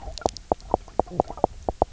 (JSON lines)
{"label": "biophony, knock croak", "recorder": "SoundTrap 300"}